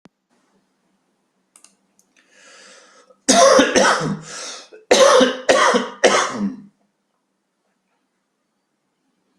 {"expert_labels": [{"quality": "good", "cough_type": "dry", "dyspnea": false, "wheezing": false, "stridor": false, "choking": false, "congestion": false, "nothing": true, "diagnosis": "upper respiratory tract infection", "severity": "mild"}], "age": 40, "gender": "male", "respiratory_condition": true, "fever_muscle_pain": false, "status": "symptomatic"}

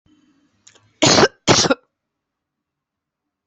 {"expert_labels": [{"quality": "good", "cough_type": "wet", "dyspnea": false, "wheezing": false, "stridor": false, "choking": false, "congestion": false, "nothing": true, "diagnosis": "upper respiratory tract infection", "severity": "mild"}], "age": 35, "gender": "female", "respiratory_condition": false, "fever_muscle_pain": false, "status": "symptomatic"}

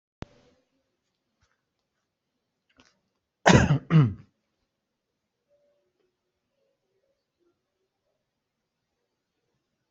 {"expert_labels": [{"quality": "good", "cough_type": "dry", "dyspnea": false, "wheezing": false, "stridor": false, "choking": false, "congestion": false, "nothing": true, "diagnosis": "healthy cough", "severity": "pseudocough/healthy cough"}], "age": 48, "gender": "female", "respiratory_condition": false, "fever_muscle_pain": false, "status": "COVID-19"}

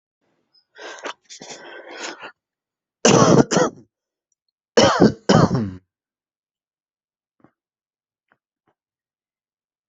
{"expert_labels": [{"quality": "good", "cough_type": "dry", "dyspnea": false, "wheezing": false, "stridor": false, "choking": false, "congestion": false, "nothing": true, "diagnosis": "healthy cough", "severity": "pseudocough/healthy cough"}], "age": 27, "gender": "male", "respiratory_condition": true, "fever_muscle_pain": false, "status": "healthy"}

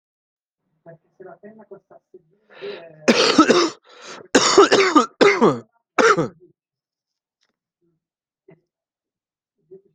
{"expert_labels": [{"quality": "good", "cough_type": "dry", "dyspnea": false, "wheezing": false, "stridor": false, "choking": false, "congestion": false, "nothing": true, "diagnosis": "upper respiratory tract infection", "severity": "mild"}], "age": 40, "gender": "male", "respiratory_condition": false, "fever_muscle_pain": false, "status": "symptomatic"}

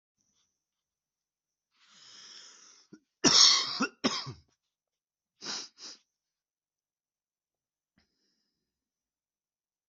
{"expert_labels": [{"quality": "ok", "cough_type": "dry", "dyspnea": false, "wheezing": false, "stridor": false, "choking": false, "congestion": false, "nothing": true, "diagnosis": "lower respiratory tract infection", "severity": "mild"}], "age": 23, "gender": "male", "respiratory_condition": true, "fever_muscle_pain": true, "status": "symptomatic"}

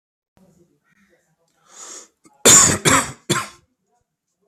{"expert_labels": [{"quality": "good", "cough_type": "dry", "dyspnea": false, "wheezing": false, "stridor": false, "choking": false, "congestion": false, "nothing": true, "diagnosis": "COVID-19", "severity": "mild"}], "age": 38, "gender": "male", "respiratory_condition": false, "fever_muscle_pain": false, "status": "COVID-19"}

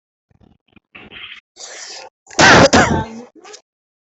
{"expert_labels": [{"quality": "ok", "cough_type": "dry", "dyspnea": false, "wheezing": false, "stridor": false, "choking": false, "congestion": false, "nothing": true, "diagnosis": "lower respiratory tract infection", "severity": "mild"}], "age": 24, "gender": "female", "respiratory_condition": true, "fever_muscle_pain": true, "status": "COVID-19"}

